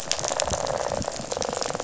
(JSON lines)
{"label": "biophony, rattle", "recorder": "SoundTrap 500"}
{"label": "biophony", "recorder": "SoundTrap 500"}